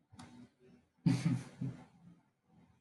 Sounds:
Laughter